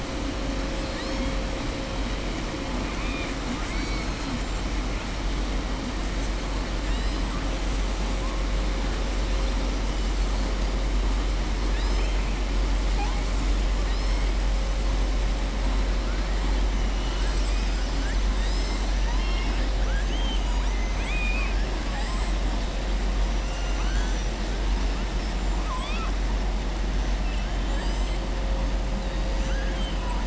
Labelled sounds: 2.8	3.3	killer whale, southern resident, 2.0 to 3.7 kHz
20.7	21.6	killer whale, southern resident, 1.1 to 4.6 kHz
21.9	22.3	killer whale, southern resident, 6.8 to 7.8 kHz
25.5	26.1	killer whale, southern resident, 1.0 to 5.5 kHz
29.4	30.0	killer whale, southern resident, 1.4 to 4.0 kHz

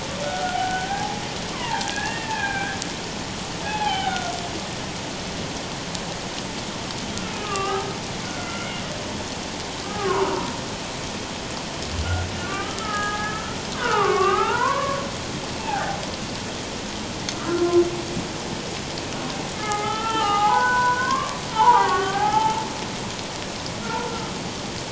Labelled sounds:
0.2	1.2	humpback whale, 0.78 to 3.1 kHz
1.5	2.8	humpback whale, 0.78 to 2.8 kHz
3.6	4.3	humpback whale, 0.78 to 3.2 kHz
7.3	8.8	humpback whale, 0.78 to 3.0 kHz
9.8	10.6	humpback whale, 0.88 to 1.7 kHz
12.4	15.0	humpback whale, 0.78 to 3.0 kHz
15.6	16.0	humpback whale, 0.78 to 0.94 kHz
17.3	17.8	humpback whale, 1.0 to 1.4 kHz
19.5	22.6	humpback whale, 0.78 to 3.0 kHz
23.8	24.1	humpback whale, 1.3 to 1.5 kHz

